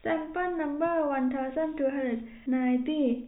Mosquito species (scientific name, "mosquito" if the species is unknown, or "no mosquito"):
no mosquito